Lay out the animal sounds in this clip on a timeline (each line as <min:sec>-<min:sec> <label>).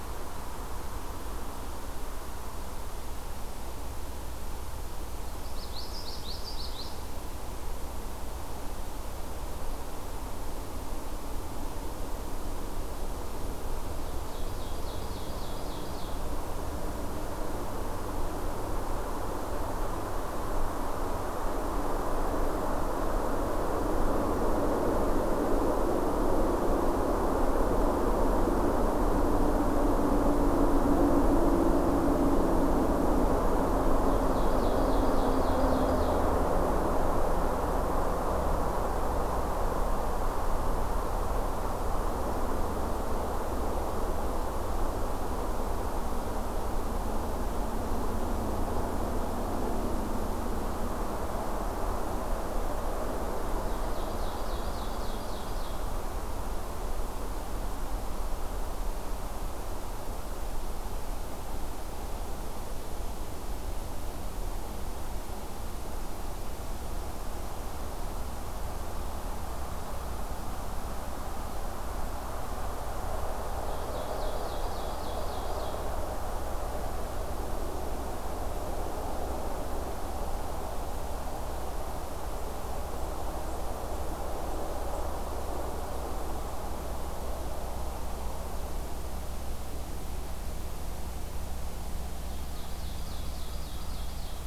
0:05.4-0:07.0 Common Yellowthroat (Geothlypis trichas)
0:14.0-0:16.3 Ovenbird (Seiurus aurocapilla)
0:34.1-0:36.3 Ovenbird (Seiurus aurocapilla)
0:53.5-0:55.9 Ovenbird (Seiurus aurocapilla)
1:13.6-1:15.9 Ovenbird (Seiurus aurocapilla)
1:32.2-1:34.5 Ovenbird (Seiurus aurocapilla)